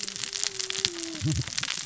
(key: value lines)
label: biophony, cascading saw
recorder: SoundTrap 600 or HydroMoth